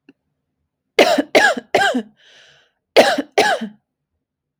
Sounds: Cough